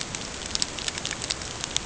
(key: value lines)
label: ambient
recorder: HydroMoth